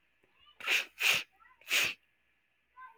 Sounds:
Sniff